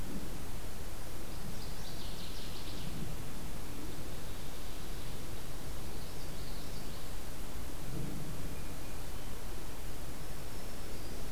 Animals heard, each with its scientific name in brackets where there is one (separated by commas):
Northern Waterthrush (Parkesia noveboracensis), Black-throated Green Warbler (Setophaga virens), Common Yellowthroat (Geothlypis trichas)